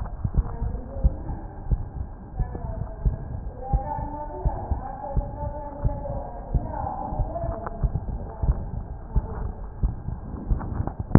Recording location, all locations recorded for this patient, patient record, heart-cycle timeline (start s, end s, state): aortic valve (AV)
aortic valve (AV)+pulmonary valve (PV)+tricuspid valve (TV)+mitral valve (MV)
#Age: Child
#Sex: Female
#Height: 149.0 cm
#Weight: 33.9 kg
#Pregnancy status: False
#Murmur: Present
#Murmur locations: aortic valve (AV)+mitral valve (MV)+pulmonary valve (PV)+tricuspid valve (TV)
#Most audible location: tricuspid valve (TV)
#Systolic murmur timing: Holosystolic
#Systolic murmur shape: Plateau
#Systolic murmur grading: III/VI or higher
#Systolic murmur pitch: Medium
#Systolic murmur quality: Blowing
#Diastolic murmur timing: nan
#Diastolic murmur shape: nan
#Diastolic murmur grading: nan
#Diastolic murmur pitch: nan
#Diastolic murmur quality: nan
#Outcome: Abnormal
#Campaign: 2015 screening campaign
0.00	4.42	unannotated
4.42	4.56	S1
4.56	4.70	systole
4.70	4.82	S2
4.82	5.14	diastole
5.14	5.28	S1
5.28	5.42	systole
5.42	5.52	S2
5.52	5.84	diastole
5.84	5.98	S1
5.98	6.10	systole
6.10	6.22	S2
6.22	6.52	diastole
6.52	6.64	S1
6.64	6.78	systole
6.78	6.90	S2
6.90	7.18	diastole
7.18	7.28	S1
7.28	7.44	systole
7.44	7.56	S2
7.56	7.82	diastole
7.82	7.96	S1
7.96	8.06	systole
8.06	8.18	S2
8.18	8.41	diastole
8.41	8.58	S1
8.58	8.74	systole
8.74	8.84	S2
8.84	9.14	diastole
9.14	9.26	S1
9.26	9.40	systole
9.40	9.52	S2
9.52	9.82	diastole
9.82	9.96	S1
9.96	10.08	systole
10.08	10.16	S2
10.16	10.48	diastole
10.48	10.66	S1
10.66	10.76	systole
10.76	10.88	S2
10.88	11.18	unannotated